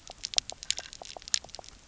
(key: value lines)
label: biophony, pulse
recorder: SoundTrap 300